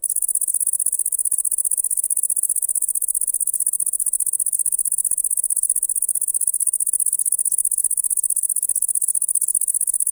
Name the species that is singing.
Tettigonia viridissima